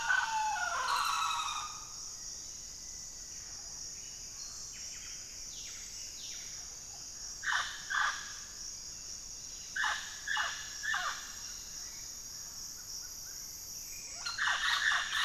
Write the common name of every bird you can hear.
Mealy Parrot, Black-faced Antthrush, Buff-breasted Wren, White-rumped Sirystes, Hauxwell's Thrush